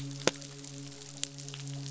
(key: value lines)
label: biophony, midshipman
recorder: SoundTrap 500